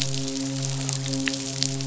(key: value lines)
label: biophony, midshipman
recorder: SoundTrap 500